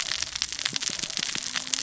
{"label": "biophony, cascading saw", "recorder": "SoundTrap 600 or HydroMoth"}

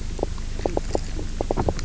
{"label": "biophony, knock croak", "recorder": "SoundTrap 300"}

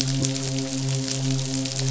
{"label": "biophony, midshipman", "recorder": "SoundTrap 500"}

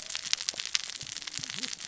{"label": "biophony, cascading saw", "recorder": "SoundTrap 600 or HydroMoth"}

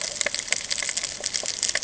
{"label": "ambient", "recorder": "HydroMoth"}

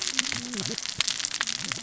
{"label": "biophony, cascading saw", "recorder": "SoundTrap 600 or HydroMoth"}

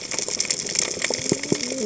{"label": "biophony, cascading saw", "recorder": "HydroMoth"}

